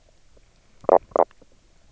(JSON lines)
{"label": "biophony, knock croak", "recorder": "SoundTrap 300"}